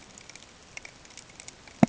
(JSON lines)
{"label": "ambient", "recorder": "HydroMoth"}